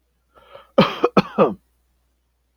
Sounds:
Cough